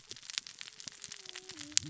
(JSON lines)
{"label": "biophony, cascading saw", "recorder": "SoundTrap 600 or HydroMoth"}